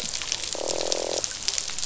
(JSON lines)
{"label": "biophony, croak", "recorder": "SoundTrap 500"}